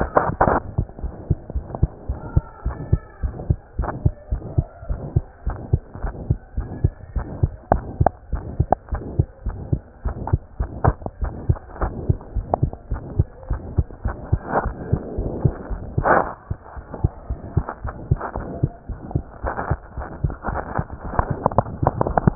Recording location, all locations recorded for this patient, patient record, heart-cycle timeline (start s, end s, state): pulmonary valve (PV)
aortic valve (AV)+pulmonary valve (PV)+tricuspid valve (TV)+mitral valve (MV)
#Age: Child
#Sex: Male
#Height: 124.0 cm
#Weight: 22.1 kg
#Pregnancy status: False
#Murmur: Present
#Murmur locations: aortic valve (AV)+mitral valve (MV)+pulmonary valve (PV)+tricuspid valve (TV)
#Most audible location: tricuspid valve (TV)
#Systolic murmur timing: Holosystolic
#Systolic murmur shape: Plateau
#Systolic murmur grading: II/VI
#Systolic murmur pitch: Medium
#Systolic murmur quality: Harsh
#Diastolic murmur timing: nan
#Diastolic murmur shape: nan
#Diastolic murmur grading: nan
#Diastolic murmur pitch: nan
#Diastolic murmur quality: nan
#Outcome: Abnormal
#Campaign: 2015 screening campaign
0.00	1.01	unannotated
1.01	1.14	S1
1.14	1.26	systole
1.26	1.38	S2
1.38	1.54	diastole
1.54	1.64	S1
1.64	1.76	systole
1.76	1.88	S2
1.88	2.06	diastole
2.06	2.20	S1
2.20	2.30	systole
2.30	2.42	S2
2.42	2.64	diastole
2.64	2.76	S1
2.76	2.86	systole
2.86	3.02	S2
3.02	3.22	diastole
3.22	3.36	S1
3.36	3.48	systole
3.48	3.58	S2
3.58	3.76	diastole
3.76	3.90	S1
3.90	4.02	systole
4.02	4.14	S2
4.14	4.30	diastole
4.30	4.41	S1
4.41	4.56	systole
4.56	4.68	S2
4.68	4.88	diastole
4.88	5.02	S1
5.02	5.14	systole
5.14	5.26	S2
5.26	5.44	diastole
5.44	5.58	S1
5.58	5.70	systole
5.70	5.82	S2
5.82	6.02	diastole
6.02	6.14	S1
6.14	6.28	systole
6.28	6.38	S2
6.38	6.58	diastole
6.58	6.70	S1
6.70	6.82	systole
6.82	6.94	S2
6.94	7.14	diastole
7.14	7.28	S1
7.28	7.40	systole
7.40	7.54	S2
7.54	7.72	diastole
7.72	7.86	S1
7.86	7.98	systole
7.98	8.12	S2
8.12	8.32	diastole
8.32	8.44	S1
8.44	8.58	systole
8.58	8.68	S2
8.68	8.90	diastole
8.90	9.04	S1
9.04	9.16	systole
9.16	9.26	S2
9.26	9.46	diastole
9.46	9.58	S1
9.58	9.70	systole
9.70	9.82	S2
9.82	10.04	diastole
10.04	10.18	S1
10.18	10.30	systole
10.30	10.42	S2
10.42	10.60	diastole
10.60	10.72	S1
10.72	10.86	systole
10.86	10.98	S2
10.98	11.18	diastole
11.18	11.34	S1
11.34	11.48	systole
11.48	11.60	S2
11.60	11.80	diastole
11.80	11.94	S1
11.94	12.08	systole
12.08	12.18	S2
12.18	12.34	diastole
12.34	12.46	S1
12.46	12.60	systole
12.60	12.72	S2
12.72	12.90	diastole
12.90	13.04	S1
13.04	13.16	systole
13.16	13.28	S2
13.28	13.48	diastole
13.48	13.62	S1
13.62	13.76	systole
13.76	13.88	S2
13.88	14.04	diastole
14.04	14.18	S1
14.18	14.32	systole
14.32	14.42	S2
14.42	14.64	diastole
14.64	14.78	S1
14.78	14.90	systole
14.90	15.00	S2
15.00	15.16	diastole
15.16	15.32	S1
15.32	15.42	systole
15.42	15.54	S2
15.54	15.70	diastole
15.70	15.82	S1
15.82	22.35	unannotated